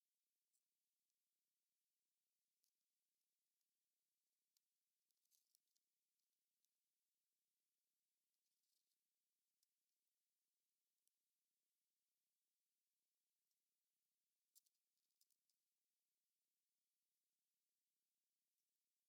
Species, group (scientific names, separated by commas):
Synephippius obvius, Orthoptera